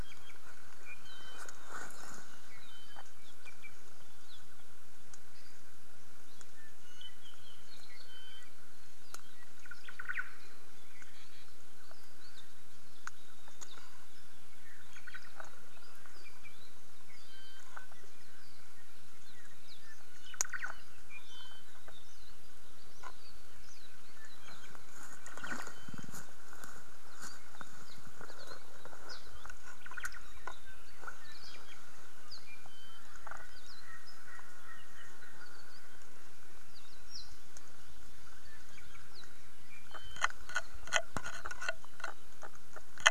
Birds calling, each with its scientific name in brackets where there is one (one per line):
Hawaii Akepa (Loxops coccineus)